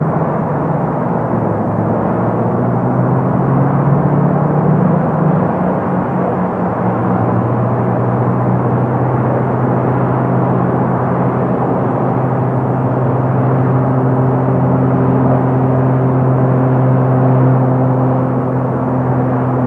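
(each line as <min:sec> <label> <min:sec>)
0:00.0 Continuous natural wind sound. 0:14.8
0:14.8 A faint, continuous buzzing sound. 0:19.7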